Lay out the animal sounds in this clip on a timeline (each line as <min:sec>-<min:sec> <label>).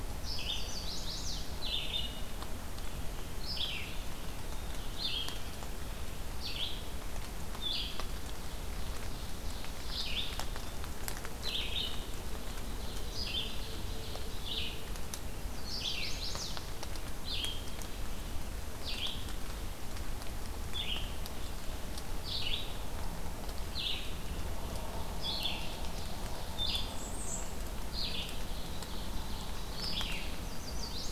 0:00.0-0:19.3 Red-eyed Vireo (Vireo olivaceus)
0:00.4-0:01.6 Chestnut-sided Warbler (Setophaga pensylvanica)
0:08.2-0:10.5 Ovenbird (Seiurus aurocapilla)
0:12.3-0:14.6 Ovenbird (Seiurus aurocapilla)
0:15.4-0:16.7 Chestnut-sided Warbler (Setophaga pensylvanica)
0:20.5-0:30.2 Red-eyed Vireo (Vireo olivaceus)
0:26.7-0:27.6 Black-and-white Warbler (Mniotilta varia)
0:28.2-0:30.0 Ovenbird (Seiurus aurocapilla)
0:30.3-0:31.1 Chestnut-sided Warbler (Setophaga pensylvanica)